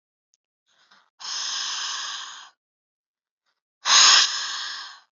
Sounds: Sigh